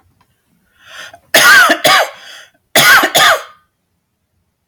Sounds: Cough